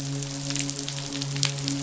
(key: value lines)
label: biophony, midshipman
recorder: SoundTrap 500